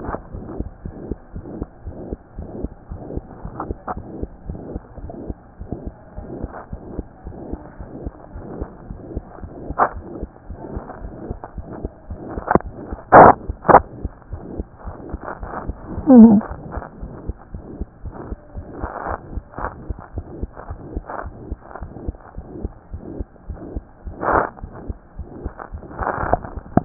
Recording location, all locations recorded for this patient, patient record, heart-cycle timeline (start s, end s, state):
mitral valve (MV)
aortic valve (AV)+pulmonary valve (PV)+tricuspid valve (TV)+mitral valve (MV)
#Age: Child
#Sex: Male
#Height: 98.0 cm
#Weight: 13.9 kg
#Pregnancy status: False
#Murmur: Present
#Murmur locations: aortic valve (AV)+mitral valve (MV)+pulmonary valve (PV)+tricuspid valve (TV)
#Most audible location: pulmonary valve (PV)
#Systolic murmur timing: Holosystolic
#Systolic murmur shape: Crescendo
#Systolic murmur grading: III/VI or higher
#Systolic murmur pitch: High
#Systolic murmur quality: Harsh
#Diastolic murmur timing: nan
#Diastolic murmur shape: nan
#Diastolic murmur grading: nan
#Diastolic murmur pitch: nan
#Diastolic murmur quality: nan
#Outcome: Abnormal
#Campaign: 2015 screening campaign
0.00	0.32	unannotated
0.32	0.44	S1
0.44	0.52	systole
0.52	0.64	S2
0.64	0.84	diastole
0.84	0.96	S1
0.96	1.08	systole
1.08	1.18	S2
1.18	1.34	diastole
1.34	1.46	S1
1.46	1.58	systole
1.58	1.68	S2
1.68	1.84	diastole
1.84	1.95	S1
1.95	2.10	systole
2.10	2.20	S2
2.20	2.35	diastole
2.35	2.47	S1
2.47	2.60	systole
2.60	2.72	S2
2.72	2.89	diastole
2.89	3.02	S1
3.02	3.10	systole
3.10	3.24	S2
3.24	3.44	diastole
3.44	3.56	S1
3.56	3.68	systole
3.68	3.78	S2
3.78	3.94	diastole
3.94	4.04	S1
4.04	4.16	systole
4.16	4.30	S2
4.30	4.48	diastole
4.48	4.60	S1
4.60	4.68	systole
4.68	4.82	S2
4.82	5.02	diastole
5.02	5.14	S1
5.14	5.26	systole
5.26	5.38	S2
5.38	5.58	diastole
5.58	5.68	S1
5.68	5.80	systole
5.80	5.94	S2
5.94	6.16	diastole
6.16	6.30	S1
6.30	6.40	systole
6.40	6.52	S2
6.52	6.70	diastole
6.70	6.80	S1
6.80	6.92	systole
6.92	7.06	S2
7.06	7.23	diastole
7.23	7.38	S1
7.38	7.50	systole
7.50	7.60	S2
7.60	7.78	diastole
7.78	7.88	S1
7.88	8.00	systole
8.00	8.14	S2
8.14	8.33	diastole
8.33	8.45	S1
8.45	8.60	systole
8.60	8.70	S2
8.70	8.88	diastole
8.88	9.02	S1
9.02	9.14	systole
9.14	9.28	S2
9.28	9.40	diastole
9.40	9.52	S1
9.52	9.68	systole
9.68	9.78	S2
9.78	9.94	diastole
9.94	10.08	S1
10.08	10.20	systole
10.20	10.30	S2
10.30	10.48	diastole
10.48	10.58	S1
10.58	10.70	systole
10.70	10.84	S2
10.84	11.02	diastole
11.02	11.18	S1
11.18	11.28	systole
11.28	11.40	S2
11.40	11.55	diastole
11.55	11.66	S1
11.66	11.78	systole
11.78	11.92	S2
11.92	12.08	diastole
12.08	12.22	S1
12.22	12.36	systole
12.36	12.46	S2
12.46	12.64	diastole
12.64	12.78	S1
12.78	12.90	systole
12.90	13.00	S2
13.00	26.85	unannotated